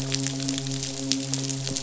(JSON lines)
{"label": "biophony, midshipman", "recorder": "SoundTrap 500"}